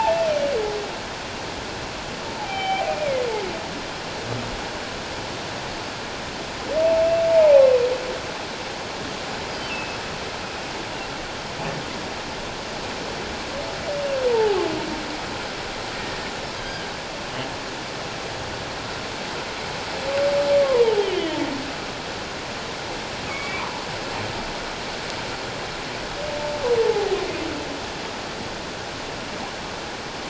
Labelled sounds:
2.4	3.2	humpback whale, 0.78 to 3.2 kHz
7.3	7.6	humpback whale, 0.78 to 1.0 kHz
9.7	10.0	humpback whale, 2.5 to 5.3 kHz
14.3	14.6	humpback whale, 0.78 to 0.97 kHz
16.6	16.9	humpback whale, 1.5 to 3.3 kHz
21.0	21.4	humpback whale, 1.8 to 3.3 kHz
23.3	23.9	humpback whale, 0.84 to 2.6 kHz
26.8	27.2	humpback whale, 0.78 to 0.91 kHz

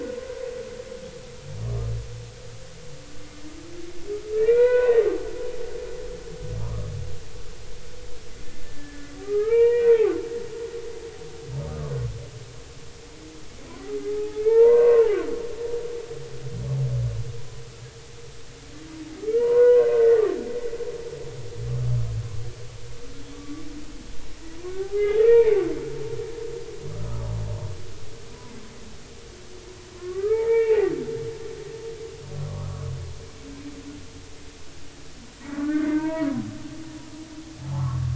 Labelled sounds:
1.7	1.9	humpback whale, 1.1 to 1.3 kHz
4.4	5.0	humpback whale, 0.90 to 2.7 kHz
6.6	6.9	humpback whale, 0.86 to 1.3 kHz
8.6	10.1	humpback whale, 0.80 to 2.9 kHz
11.6	11.9	humpback whale, 0.99 to 1.3 kHz
14.1	15.2	humpback whale, 0.80 to 2.4 kHz
19.4	20.2	humpback whale, 0.90 to 2.1 kHz
23.3	23.6	humpback whale, 1.1 to 1.2 kHz
24.8	25.6	humpback whale, 0.80 to 2.5 kHz
26.9	27.3	humpback whale, 1.1 to 1.3 kHz
29.9	30.9	humpback whale, 0.80 to 2.8 kHz
35.5	36.3	humpback whale, 0.86 to 2.7 kHz
37.6	38.1	humpback whale, 0.80 to 1.4 kHz

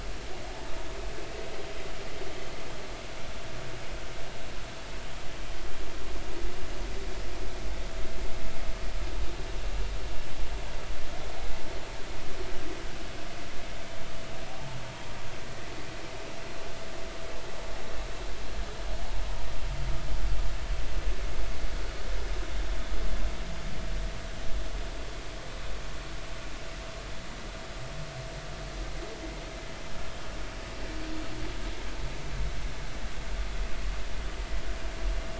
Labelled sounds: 14.4	14.8	humpback whale, 0.80 to 0.93 kHz

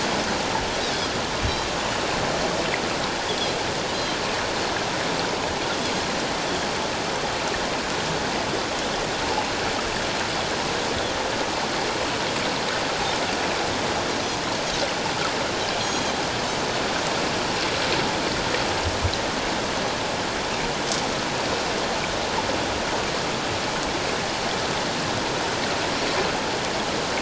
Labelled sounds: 15.8	16.1	Pacific white-sided dolphin, 3.1 to 6.6 kHz

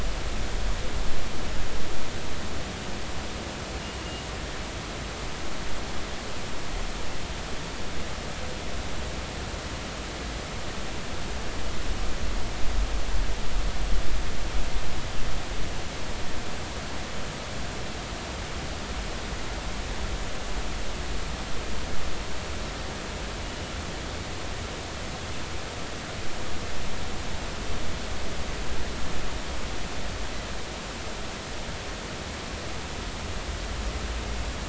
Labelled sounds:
23.4	23.7	killer whale, 2.8 to 3.0 kHz

